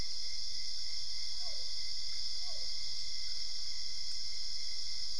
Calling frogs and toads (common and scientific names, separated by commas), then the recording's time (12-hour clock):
Physalaemus cuvieri
2:00am